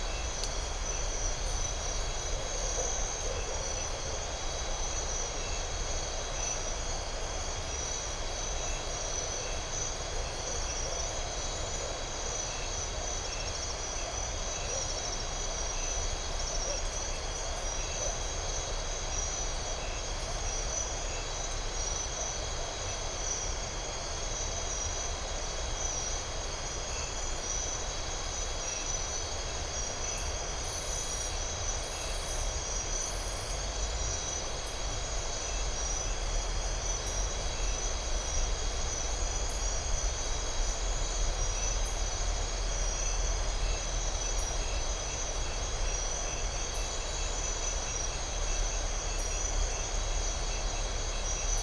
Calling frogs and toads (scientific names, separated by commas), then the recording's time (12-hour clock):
none
10:00pm